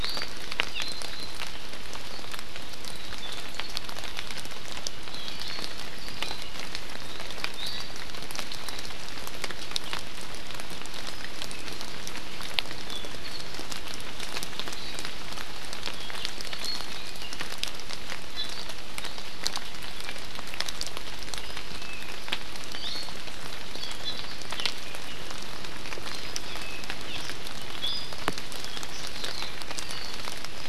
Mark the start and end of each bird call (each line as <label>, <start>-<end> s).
Iiwi (Drepanis coccinea), 0.0-0.3 s
Iiwi (Drepanis coccinea), 7.5-8.1 s
Iiwi (Drepanis coccinea), 18.3-18.5 s
Iiwi (Drepanis coccinea), 22.7-23.2 s
Iiwi (Drepanis coccinea), 27.8-28.2 s